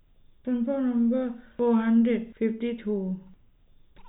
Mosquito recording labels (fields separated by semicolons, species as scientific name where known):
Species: no mosquito; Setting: cup